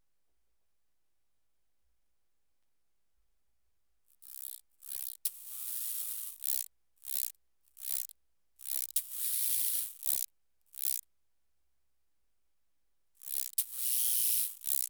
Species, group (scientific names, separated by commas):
Arcyptera fusca, Orthoptera